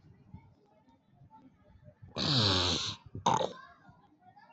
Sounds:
Sniff